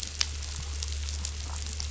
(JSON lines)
{"label": "anthrophony, boat engine", "recorder": "SoundTrap 500"}